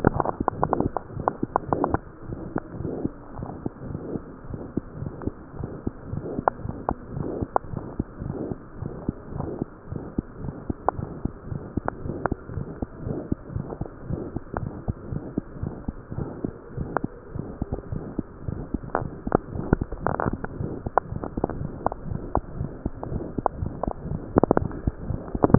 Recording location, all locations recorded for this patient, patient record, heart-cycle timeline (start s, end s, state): mitral valve (MV)
aortic valve (AV)+pulmonary valve (PV)+tricuspid valve (TV)+mitral valve (MV)
#Age: Infant
#Sex: Male
#Height: 72.0 cm
#Weight: 8.8 kg
#Pregnancy status: False
#Murmur: Present
#Murmur locations: aortic valve (AV)+mitral valve (MV)+pulmonary valve (PV)+tricuspid valve (TV)
#Most audible location: aortic valve (AV)
#Systolic murmur timing: Early-systolic
#Systolic murmur shape: Decrescendo
#Systolic murmur grading: II/VI
#Systolic murmur pitch: Low
#Systolic murmur quality: Blowing
#Diastolic murmur timing: nan
#Diastolic murmur shape: nan
#Diastolic murmur grading: nan
#Diastolic murmur pitch: nan
#Diastolic murmur quality: nan
#Outcome: Abnormal
#Campaign: 2015 screening campaign
0.00	15.02	unannotated
15.02	15.10	diastole
15.10	15.24	S1
15.24	15.34	systole
15.34	15.48	S2
15.48	15.60	diastole
15.60	15.70	S1
15.70	15.84	systole
15.84	15.93	S2
15.93	16.16	diastole
16.16	16.29	S1
16.29	16.40	systole
16.40	16.50	S2
16.50	16.75	diastole
16.75	16.87	S1
16.87	17.02	systole
17.02	17.08	S2
17.08	17.33	diastole
17.33	17.44	S1
17.44	17.57	systole
17.57	17.67	S2
17.67	17.90	diastole
17.90	17.97	S1
17.97	18.16	systole
18.16	18.23	S2
18.23	18.45	diastole
18.45	18.53	S1
18.53	18.70	systole
18.70	18.78	S2
18.78	18.97	diastole
18.97	19.09	S1
19.09	19.21	systole
19.21	19.31	S2
19.31	19.54	diastole
19.54	19.64	S1
19.64	19.78	systole
19.78	19.87	S2
19.87	20.05	diastole
20.05	25.58	unannotated